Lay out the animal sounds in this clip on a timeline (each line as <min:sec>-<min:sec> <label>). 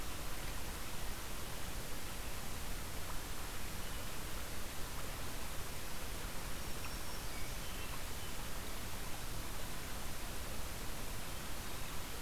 0:06.5-0:07.7 Black-throated Green Warbler (Setophaga virens)
0:07.2-0:08.3 Hermit Thrush (Catharus guttatus)